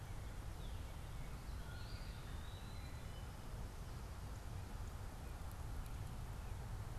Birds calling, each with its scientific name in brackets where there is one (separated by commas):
Northern Cardinal (Cardinalis cardinalis), Eastern Wood-Pewee (Contopus virens)